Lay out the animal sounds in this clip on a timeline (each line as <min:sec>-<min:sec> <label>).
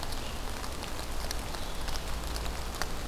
0:00.0-0:03.1 Red-eyed Vireo (Vireo olivaceus)